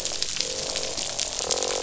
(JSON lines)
{"label": "biophony, croak", "recorder": "SoundTrap 500"}